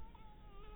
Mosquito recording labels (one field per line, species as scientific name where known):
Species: Anopheles dirus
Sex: female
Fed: blood-fed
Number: one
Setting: cup